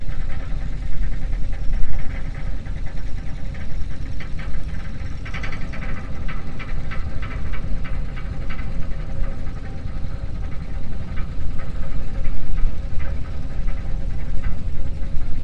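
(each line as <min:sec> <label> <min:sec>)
0:00.0 Sound coming from the wires of a cable ferry. 0:15.4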